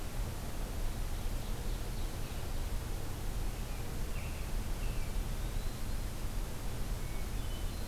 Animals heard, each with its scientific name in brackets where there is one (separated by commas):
Hermit Thrush (Catharus guttatus), Ovenbird (Seiurus aurocapilla), Eastern Wood-Pewee (Contopus virens), American Robin (Turdus migratorius)